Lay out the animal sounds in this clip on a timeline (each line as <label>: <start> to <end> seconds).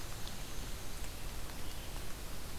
Black-and-white Warbler (Mniotilta varia): 0.0 to 1.2 seconds